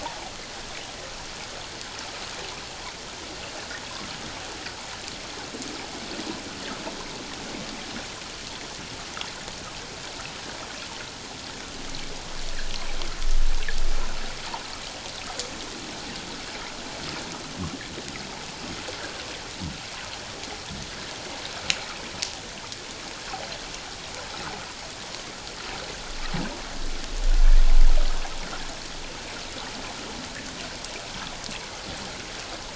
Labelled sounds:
0.0	0.3	water noise, 0.78 to 1.0 kHz

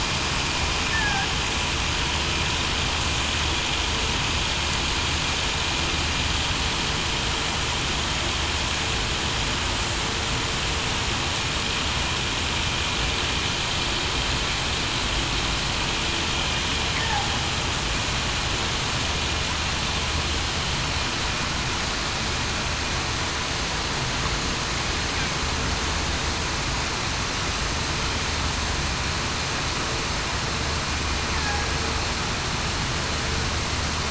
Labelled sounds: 0.9	1.3	killer whale, southern resident, 1.5 to 1.8 kHz

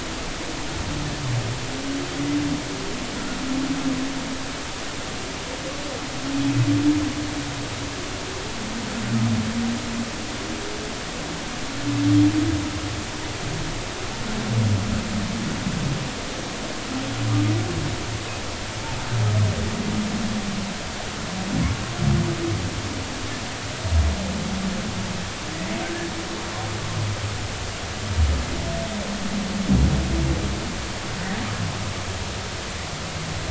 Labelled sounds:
3.1	3.4	humpback whale, 1.3 to 1.5 kHz

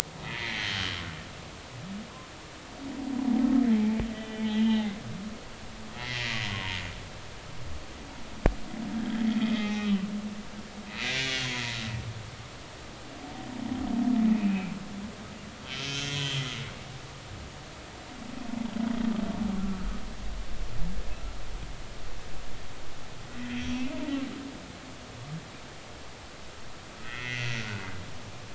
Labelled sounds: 0.2	0.9	humpback whale, 1.8 to 3.3 kHz
4.1	5.0	humpback whale, 1.9 to 3.8 kHz
6.0	6.8	humpback whale, 0.90 to 2.2 kHz
8.9	10.0	humpback whale, 0.80 to 3.9 kHz
10.9	11.8	humpback whale, 1.5 to 3.6 kHz
14.3	14.7	humpback whale, 2.3 to 2.7 kHz
15.6	16.5	humpback whale, 1.3 to 6.1 kHz
23.5	23.9	humpback whale, 3.1 to 5.9 kHz
27.0	28.2	humpback whale, 1.2 to 3.4 kHz

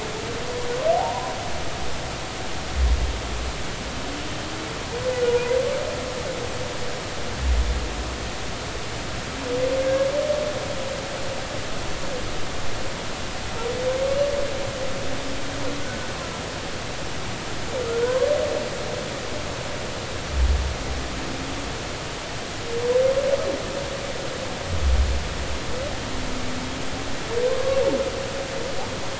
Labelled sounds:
0.9	1.3	humpback whale, 0.80 to 1.1 kHz
5.3	5.6	humpback whale, 0.93 to 1.0 kHz
9.8	10.1	humpback whale, 1.5 to 1.7 kHz
15.8	16.1	humpback whale, 1.4 to 1.6 kHz
18.0	18.3	humpback whale, 0.90 to 1.1 kHz

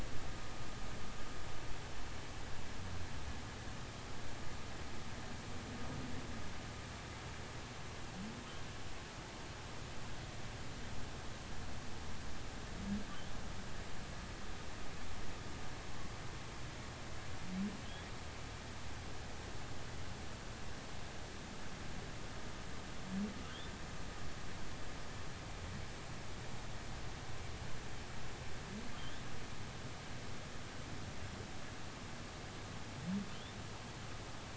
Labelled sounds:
29.0	29.2	humpback whale, 3.0 to 3.6 kHz

